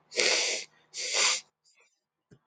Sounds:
Sniff